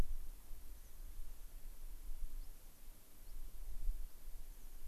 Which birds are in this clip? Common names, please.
American Pipit